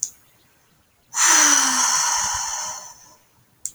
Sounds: Sigh